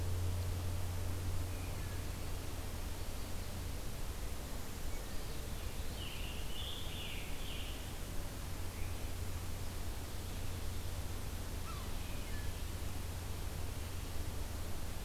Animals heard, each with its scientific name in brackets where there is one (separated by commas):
Scarlet Tanager (Piranga olivacea), Yellow-bellied Sapsucker (Sphyrapicus varius)